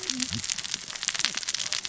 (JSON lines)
{"label": "biophony, cascading saw", "recorder": "SoundTrap 600 or HydroMoth"}